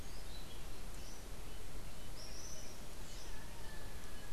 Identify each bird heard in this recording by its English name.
Tropical Kingbird